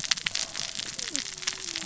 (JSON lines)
{"label": "biophony, cascading saw", "recorder": "SoundTrap 600 or HydroMoth"}